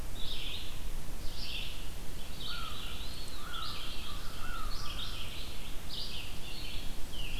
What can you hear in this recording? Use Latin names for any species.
Vireo olivaceus, Corvus brachyrhynchos, Contopus virens